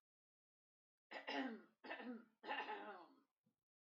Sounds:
Cough